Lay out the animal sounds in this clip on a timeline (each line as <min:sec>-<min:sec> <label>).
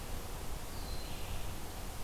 0:00.0-0:02.0 Red-eyed Vireo (Vireo olivaceus)
0:00.7-0:01.3 Eastern Wood-Pewee (Contopus virens)